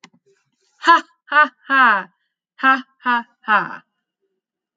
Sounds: Laughter